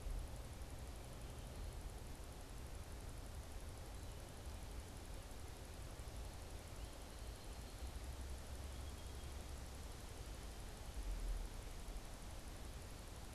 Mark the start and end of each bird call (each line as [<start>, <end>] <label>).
[6.74, 9.64] unidentified bird